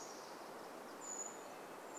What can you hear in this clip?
Brown Creeper call, Golden-crowned Kinglet song, Red-breasted Nuthatch song